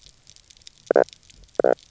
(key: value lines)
label: biophony, knock croak
recorder: SoundTrap 300